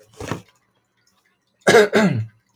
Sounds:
Cough